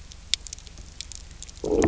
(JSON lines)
{"label": "biophony, low growl", "recorder": "SoundTrap 300"}